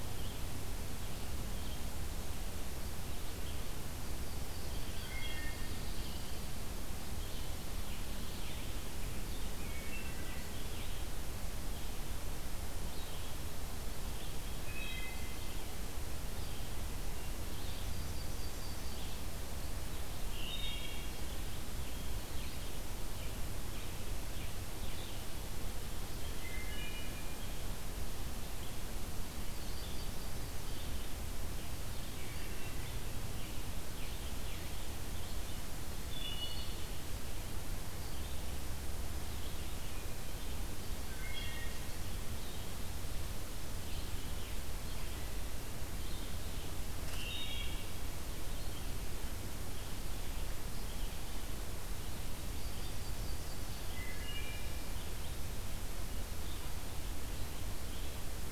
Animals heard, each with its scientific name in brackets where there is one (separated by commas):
Wood Thrush (Hylocichla mustelina), Pine Warbler (Setophaga pinus), Scarlet Tanager (Piranga olivacea), Red-eyed Vireo (Vireo olivaceus), Yellow-rumped Warbler (Setophaga coronata)